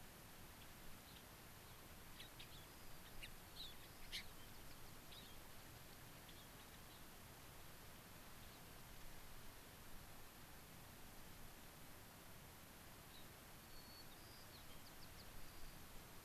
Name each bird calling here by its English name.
Gray-crowned Rosy-Finch, White-crowned Sparrow